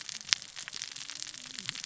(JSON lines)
{"label": "biophony, cascading saw", "recorder": "SoundTrap 600 or HydroMoth"}